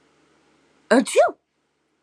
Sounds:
Sneeze